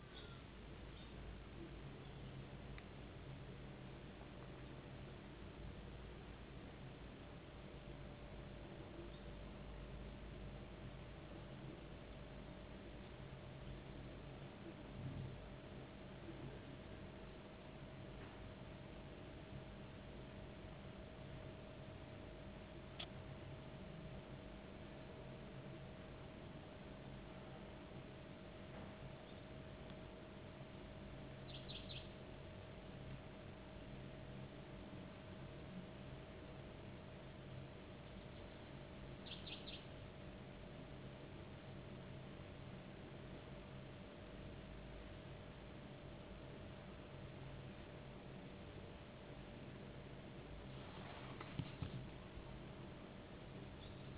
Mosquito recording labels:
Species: no mosquito; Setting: insect culture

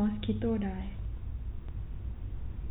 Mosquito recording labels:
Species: mosquito; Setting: cup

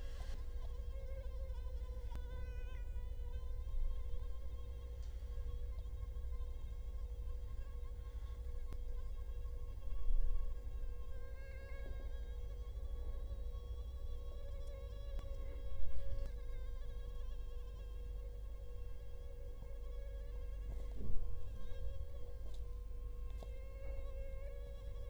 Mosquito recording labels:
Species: Culex quinquefasciatus; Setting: cup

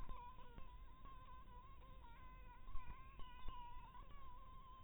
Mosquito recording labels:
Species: mosquito; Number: one; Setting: cup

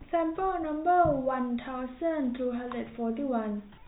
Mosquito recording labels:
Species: no mosquito; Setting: cup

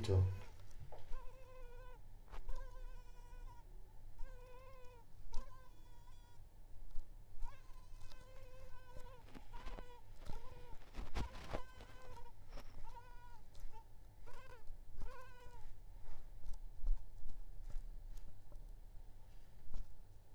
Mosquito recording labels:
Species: Culex pipiens complex; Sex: female; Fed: unfed; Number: one; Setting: cup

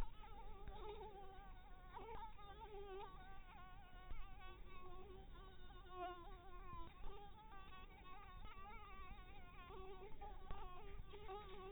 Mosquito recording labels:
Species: Anopheles dirus; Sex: female; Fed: blood-fed; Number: one; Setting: cup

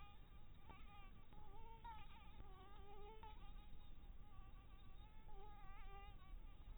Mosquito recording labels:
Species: Anopheles dirus; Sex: female; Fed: blood-fed; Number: one; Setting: cup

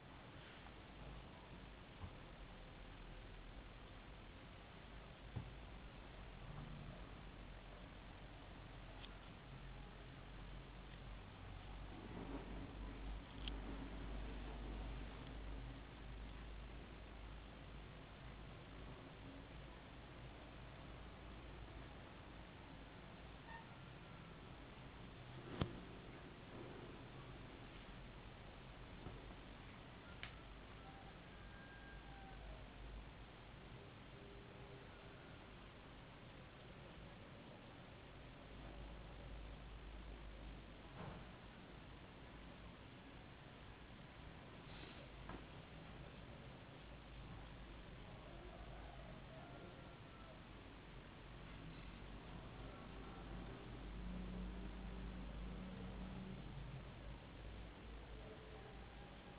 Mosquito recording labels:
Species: no mosquito; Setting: insect culture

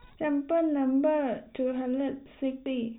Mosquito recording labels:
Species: no mosquito; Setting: cup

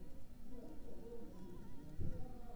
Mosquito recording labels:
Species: Anopheles arabiensis; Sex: female; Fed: unfed; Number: one; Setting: cup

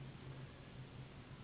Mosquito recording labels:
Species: Anopheles gambiae s.s.; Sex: female; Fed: unfed; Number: one; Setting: insect culture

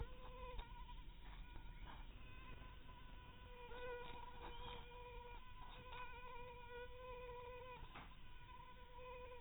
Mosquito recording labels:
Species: mosquito; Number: one; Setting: cup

